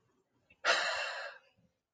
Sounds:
Sigh